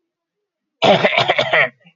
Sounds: Throat clearing